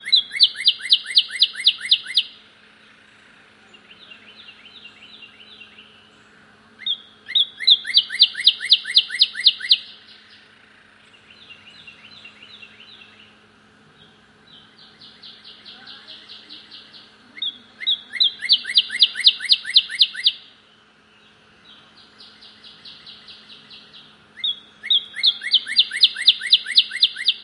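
A bird chirps loudly. 0:00.0 - 0:02.4
A bird chirps quietly. 0:03.6 - 0:06.4
A bird chirps loudly. 0:06.7 - 0:09.9
A bird chirps quietly. 0:11.2 - 0:17.3
A bird chirps loudly. 0:17.3 - 0:20.5
A bird chirps quietly. 0:21.6 - 0:24.2
A bird chirps loudly. 0:24.3 - 0:27.4

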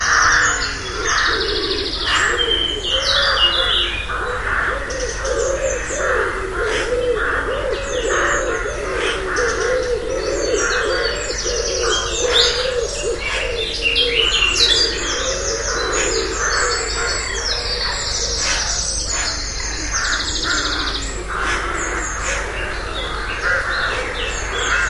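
Crows cawing in the forest with gradually decreasing intensity. 0:00.0 - 0:24.9
Many different birds singing in the forest. 0:00.0 - 0:24.9
Pigeons cooing in a forest. 0:00.1 - 0:24.9

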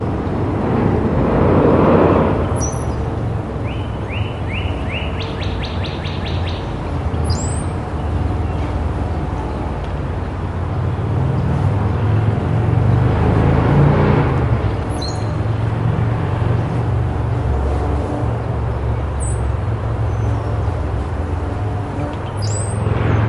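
Car noises. 0:00.0 - 0:02.9
Car noises in the distance. 0:00.0 - 0:23.3
A bird is singing. 0:02.8 - 0:08.2
Car noises. 0:10.7 - 0:15.0
A bird is squeaking. 0:14.3 - 0:15.9

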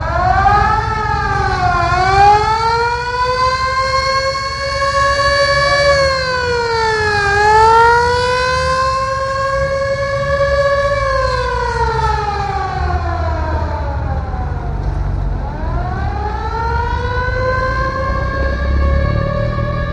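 A loud siren changes pitch at different intervals. 0:00.0 - 0:19.9

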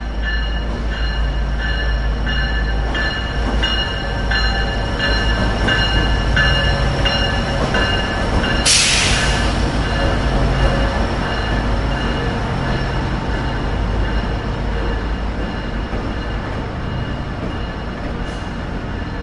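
The sound of air whooshing as a train passes by gradually increases. 0:00.0 - 0:07.8
A continuous, rhythmic bell chime gradually increasing in volume. 0:00.1 - 0:08.4
A brief burst of pressurized air or steam hissing. 0:08.5 - 0:10.2
A continuous and rhythmic bell chime gradually fading and decreasing. 0:10.3 - 0:18.1
The whooshing sound of displaced air as a train passes by gradually fades. 0:10.7 - 0:18.9

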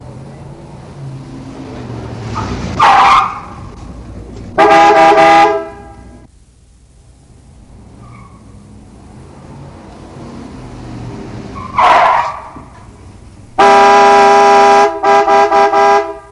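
Tire squeaking. 0:02.3 - 0:03.4
A truck horn sounds. 0:04.5 - 0:05.8
A tire squeaks in the distance. 0:07.6 - 0:08.7
Tire squeaking. 0:11.6 - 0:12.6
A truck honks aggressively. 0:13.5 - 0:16.3

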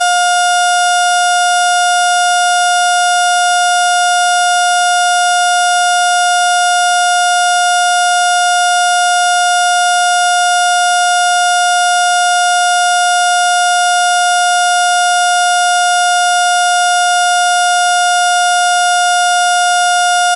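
A loud, steady electronic squeaking signal plays. 0:00.0 - 0:20.4

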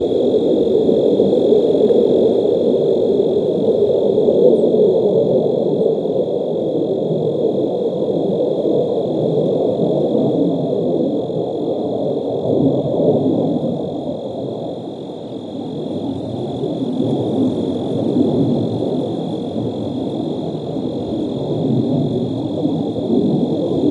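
Crickets chirp while the wind blows. 0:00.0 - 0:23.9

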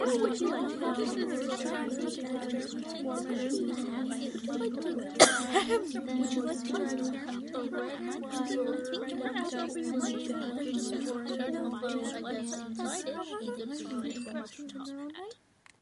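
People talking quickly in the background. 0:00.0 - 0:15.8
A person coughs loudly and abruptly. 0:05.1 - 0:05.4

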